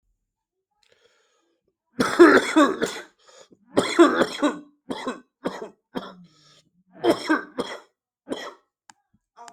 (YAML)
expert_labels:
- quality: ok
  cough_type: wet
  dyspnea: false
  wheezing: false
  stridor: false
  choking: false
  congestion: false
  nothing: true
  diagnosis: lower respiratory tract infection
  severity: severe
age: 37
gender: male
respiratory_condition: true
fever_muscle_pain: false
status: symptomatic